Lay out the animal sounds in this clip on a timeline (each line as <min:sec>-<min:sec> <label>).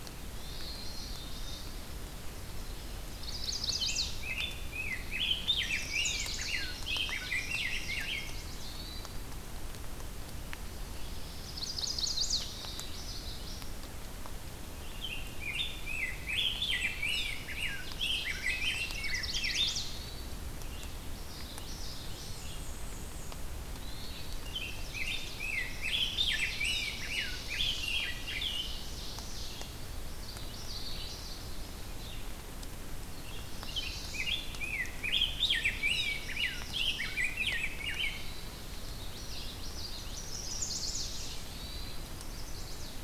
0:00.3-0:01.0 Hermit Thrush (Catharus guttatus)
0:00.5-0:01.7 Common Yellowthroat (Geothlypis trichas)
0:00.5-0:01.6 Black-capped Chickadee (Poecile atricapillus)
0:03.0-0:04.2 Chestnut-sided Warbler (Setophaga pensylvanica)
0:03.1-0:03.6 Hermit Thrush (Catharus guttatus)
0:03.7-0:08.5 Rose-breasted Grosbeak (Pheucticus ludovicianus)
0:05.4-0:06.7 Chestnut-sided Warbler (Setophaga pensylvanica)
0:06.1-0:08.1 Ovenbird (Seiurus aurocapilla)
0:08.0-0:08.7 Chestnut-sided Warbler (Setophaga pensylvanica)
0:08.6-0:09.2 Hermit Thrush (Catharus guttatus)
0:11.3-0:12.5 Chestnut-sided Warbler (Setophaga pensylvanica)
0:12.3-0:13.7 Common Yellowthroat (Geothlypis trichas)
0:14.6-0:19.9 Rose-breasted Grosbeak (Pheucticus ludovicianus)
0:17.6-0:19.1 Ovenbird (Seiurus aurocapilla)
0:18.8-0:20.1 Chestnut-sided Warbler (Setophaga pensylvanica)
0:19.6-0:20.4 Hermit Thrush (Catharus guttatus)
0:20.5-0:32.2 Red-eyed Vireo (Vireo olivaceus)
0:21.1-0:22.7 Common Yellowthroat (Geothlypis trichas)
0:21.7-0:23.5 Black-and-white Warbler (Mniotilta varia)
0:23.6-0:24.4 Hermit Thrush (Catharus guttatus)
0:24.0-0:28.8 Rose-breasted Grosbeak (Pheucticus ludovicianus)
0:24.3-0:25.4 Chestnut-sided Warbler (Setophaga pensylvanica)
0:25.4-0:27.3 Ovenbird (Seiurus aurocapilla)
0:26.9-0:28.0 Chestnut-sided Warbler (Setophaga pensylvanica)
0:27.7-0:29.8 Ovenbird (Seiurus aurocapilla)
0:30.0-0:31.5 Common Yellowthroat (Geothlypis trichas)
0:33.2-0:34.4 Chestnut-sided Warbler (Setophaga pensylvanica)
0:33.2-0:38.5 Rose-breasted Grosbeak (Pheucticus ludovicianus)
0:35.4-0:37.3 Ovenbird (Seiurus aurocapilla)
0:37.9-0:38.6 Hermit Thrush (Catharus guttatus)
0:38.8-0:40.2 Common Yellowthroat (Geothlypis trichas)
0:39.9-0:41.4 Chestnut-sided Warbler (Setophaga pensylvanica)
0:41.3-0:42.0 Hermit Thrush (Catharus guttatus)
0:41.9-0:43.0 Chestnut-sided Warbler (Setophaga pensylvanica)